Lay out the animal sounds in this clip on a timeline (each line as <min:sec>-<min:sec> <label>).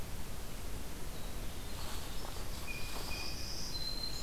0:01.1-0:04.2 Winter Wren (Troglodytes hiemalis)
0:02.4-0:03.7 Blue Jay (Cyanocitta cristata)
0:02.8-0:04.2 Black-throated Green Warbler (Setophaga virens)